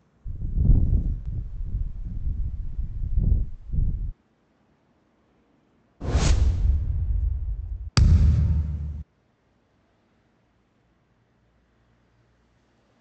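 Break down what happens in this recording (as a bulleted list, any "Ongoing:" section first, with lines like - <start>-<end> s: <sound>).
- 0.25-4.13 s: the sound of wind
- 6.0-7.9 s: whooshing is audible
- 7.95-9.03 s: you can hear thumping
- a faint constant noise runs about 40 decibels below the sounds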